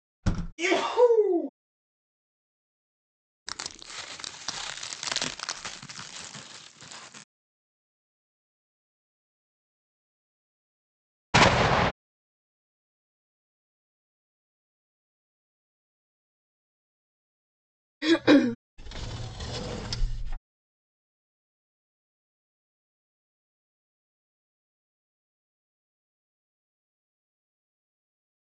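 First at 0.23 seconds, a window closes. Then at 0.58 seconds, someone sneezes. At 3.46 seconds, there is crushing. At 11.34 seconds, you can hear an explosion. At 18.01 seconds, someone coughs. Afterwards, at 18.77 seconds, a glass window opens.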